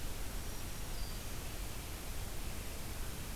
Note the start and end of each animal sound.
0.3s-1.5s: Black-throated Green Warbler (Setophaga virens)

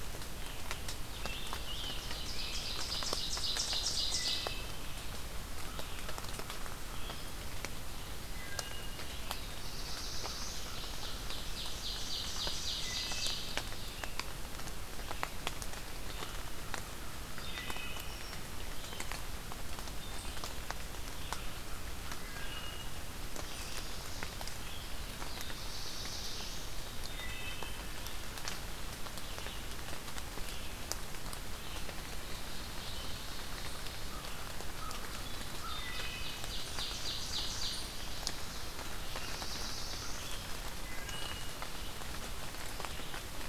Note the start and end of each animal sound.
0.1s-2.8s: Scarlet Tanager (Piranga olivacea)
1.1s-4.6s: Ovenbird (Seiurus aurocapilla)
4.1s-4.6s: Wood Thrush (Hylocichla mustelina)
5.6s-7.2s: American Crow (Corvus brachyrhynchos)
6.9s-30.9s: Red-eyed Vireo (Vireo olivaceus)
8.3s-9.1s: Wood Thrush (Hylocichla mustelina)
8.9s-10.7s: Black-throated Blue Warbler (Setophaga caerulescens)
10.4s-13.5s: Ovenbird (Seiurus aurocapilla)
12.7s-13.4s: Wood Thrush (Hylocichla mustelina)
17.3s-18.2s: Wood Thrush (Hylocichla mustelina)
21.2s-22.2s: American Crow (Corvus brachyrhynchos)
22.2s-23.0s: Wood Thrush (Hylocichla mustelina)
24.9s-26.7s: Black-throated Blue Warbler (Setophaga caerulescens)
27.0s-27.8s: Wood Thrush (Hylocichla mustelina)
31.4s-43.5s: Red-eyed Vireo (Vireo olivaceus)
31.9s-34.2s: Ovenbird (Seiurus aurocapilla)
34.0s-35.8s: American Crow (Corvus brachyrhynchos)
35.3s-38.0s: Ovenbird (Seiurus aurocapilla)
35.6s-36.5s: Wood Thrush (Hylocichla mustelina)
38.6s-40.2s: Black-throated Blue Warbler (Setophaga caerulescens)
40.9s-41.5s: Wood Thrush (Hylocichla mustelina)

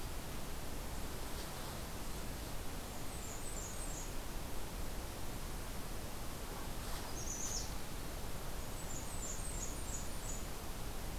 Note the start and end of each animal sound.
2.8s-4.2s: Blackburnian Warbler (Setophaga fusca)
6.8s-7.7s: American Redstart (Setophaga ruticilla)
8.5s-10.4s: Blackburnian Warbler (Setophaga fusca)

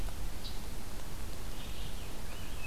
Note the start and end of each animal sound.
0.4s-0.6s: Scarlet Tanager (Piranga olivacea)
1.5s-2.7s: Red-eyed Vireo (Vireo olivaceus)
1.9s-2.7s: Rose-breasted Grosbeak (Pheucticus ludovicianus)

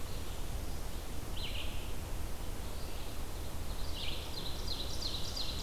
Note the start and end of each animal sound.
1.2s-5.6s: Red-eyed Vireo (Vireo olivaceus)
3.7s-5.6s: Ovenbird (Seiurus aurocapilla)

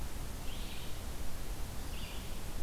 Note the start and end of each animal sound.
0.0s-2.6s: Red-eyed Vireo (Vireo olivaceus)

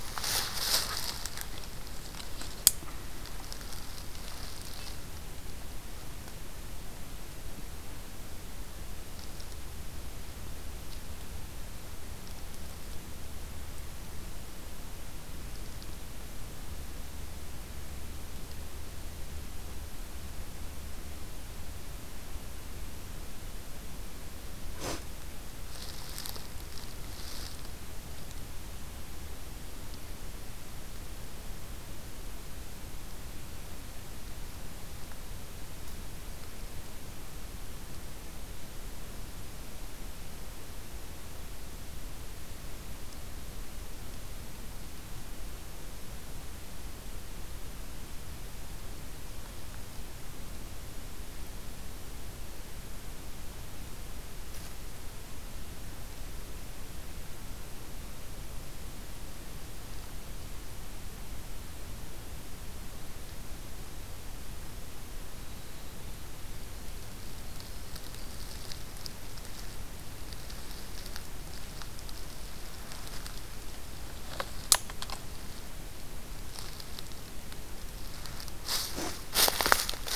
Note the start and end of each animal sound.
63.9s-68.6s: Winter Wren (Troglodytes hiemalis)

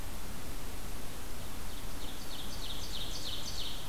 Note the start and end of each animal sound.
1.3s-3.9s: Ovenbird (Seiurus aurocapilla)

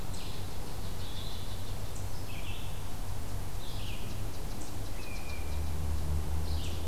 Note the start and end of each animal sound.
0.0s-6.9s: Red-eyed Vireo (Vireo olivaceus)
0.0s-6.9s: unknown mammal
4.9s-5.5s: unidentified call

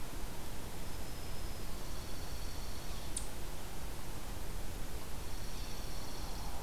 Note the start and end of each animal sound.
0.7s-2.0s: Black-throated Green Warbler (Setophaga virens)
1.5s-3.1s: Dark-eyed Junco (Junco hyemalis)
3.1s-3.4s: Eastern Chipmunk (Tamias striatus)
4.8s-6.6s: Dark-eyed Junco (Junco hyemalis)

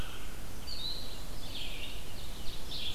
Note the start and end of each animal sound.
0.0s-2.9s: Red-eyed Vireo (Vireo olivaceus)
2.0s-2.9s: Ovenbird (Seiurus aurocapilla)

